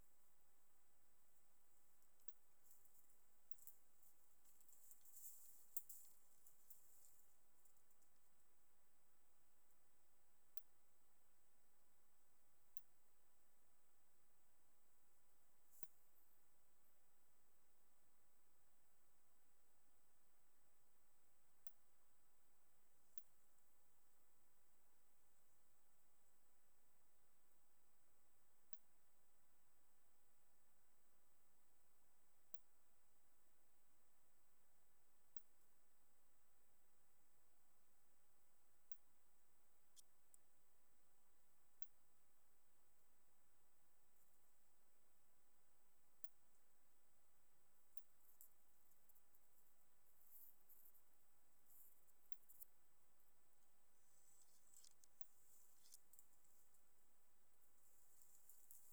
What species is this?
Cyrtaspis scutata